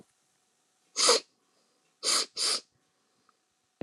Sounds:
Sniff